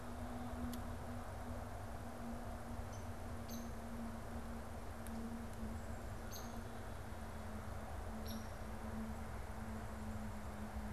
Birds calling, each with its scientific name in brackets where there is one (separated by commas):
Hairy Woodpecker (Dryobates villosus), Downy Woodpecker (Dryobates pubescens)